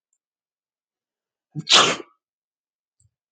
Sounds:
Sneeze